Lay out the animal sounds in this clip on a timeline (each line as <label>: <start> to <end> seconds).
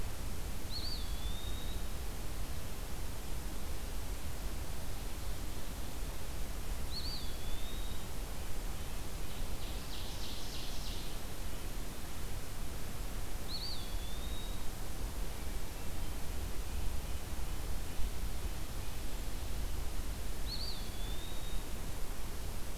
Eastern Wood-Pewee (Contopus virens): 0.4 to 2.3 seconds
Eastern Wood-Pewee (Contopus virens): 6.6 to 8.5 seconds
Ovenbird (Seiurus aurocapilla): 9.0 to 11.3 seconds
Eastern Wood-Pewee (Contopus virens): 13.2 to 14.9 seconds
Eastern Wood-Pewee (Contopus virens): 20.1 to 22.2 seconds